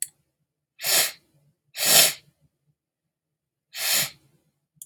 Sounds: Sniff